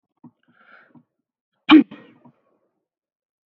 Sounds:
Sneeze